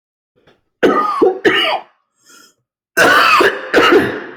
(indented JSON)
{
  "expert_labels": [
    {
      "quality": "good",
      "cough_type": "wet",
      "dyspnea": false,
      "wheezing": false,
      "stridor": false,
      "choking": false,
      "congestion": false,
      "nothing": true,
      "diagnosis": "lower respiratory tract infection",
      "severity": "severe"
    }
  ],
  "age": 53,
  "gender": "male",
  "respiratory_condition": false,
  "fever_muscle_pain": false,
  "status": "symptomatic"
}